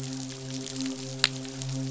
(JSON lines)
{"label": "biophony, midshipman", "recorder": "SoundTrap 500"}